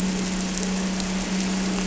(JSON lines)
{"label": "anthrophony, boat engine", "recorder": "SoundTrap 300"}